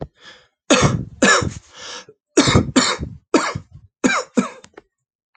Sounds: Cough